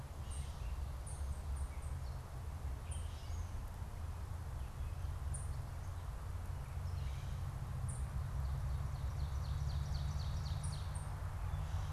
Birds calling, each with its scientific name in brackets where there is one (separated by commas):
unidentified bird, Gray Catbird (Dumetella carolinensis), Ovenbird (Seiurus aurocapilla)